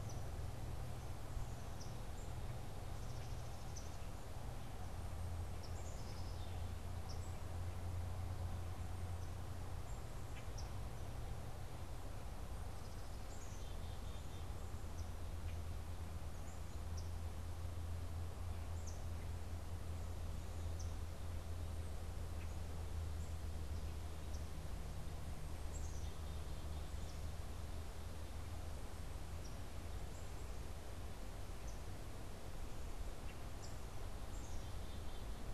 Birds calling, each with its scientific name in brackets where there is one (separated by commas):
unidentified bird, Black-capped Chickadee (Poecile atricapillus), Common Grackle (Quiscalus quiscula)